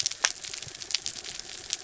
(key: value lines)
label: anthrophony, mechanical
recorder: SoundTrap 300